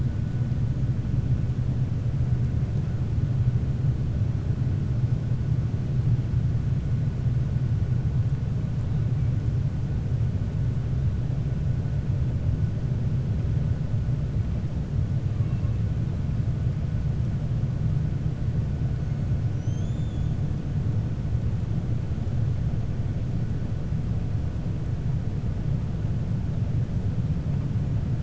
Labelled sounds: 19.5	20.3	killer whale, 5.8 to 7.2 kHz

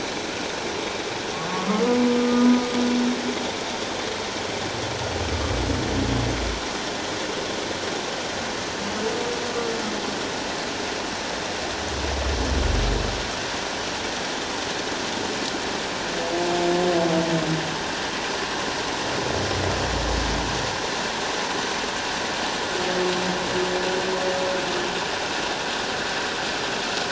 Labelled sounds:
1.5	2.5	humpback whale, 1.1 to 1.3 kHz

